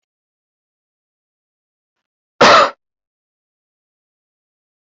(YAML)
expert_labels:
- quality: good
  cough_type: dry
  dyspnea: false
  wheezing: false
  stridor: false
  choking: false
  congestion: false
  nothing: true
  diagnosis: healthy cough
  severity: pseudocough/healthy cough
age: 25
gender: female
respiratory_condition: false
fever_muscle_pain: false
status: healthy